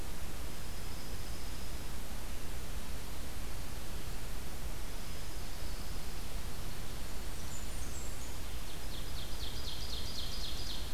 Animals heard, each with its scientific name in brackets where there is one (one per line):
Ovenbird (Seiurus aurocapilla)
Blackburnian Warbler (Setophaga fusca)
Dark-eyed Junco (Junco hyemalis)